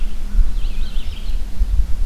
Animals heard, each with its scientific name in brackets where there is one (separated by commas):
American Crow (Corvus brachyrhynchos), Red-eyed Vireo (Vireo olivaceus)